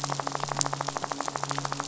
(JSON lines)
{"label": "anthrophony, boat engine", "recorder": "SoundTrap 500"}